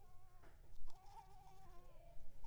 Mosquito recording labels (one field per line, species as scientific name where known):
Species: Anopheles coustani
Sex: female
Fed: unfed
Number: one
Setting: cup